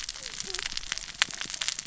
{"label": "biophony, cascading saw", "recorder": "SoundTrap 600 or HydroMoth"}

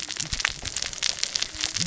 {"label": "biophony, cascading saw", "recorder": "SoundTrap 600 or HydroMoth"}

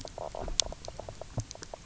{"label": "biophony, knock croak", "recorder": "SoundTrap 300"}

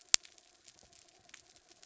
{"label": "anthrophony, mechanical", "recorder": "SoundTrap 300"}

